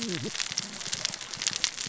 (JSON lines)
{"label": "biophony, cascading saw", "recorder": "SoundTrap 600 or HydroMoth"}